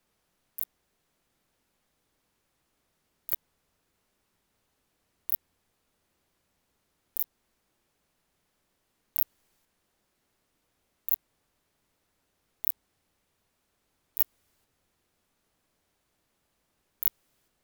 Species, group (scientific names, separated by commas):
Phaneroptera nana, Orthoptera